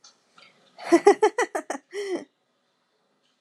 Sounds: Laughter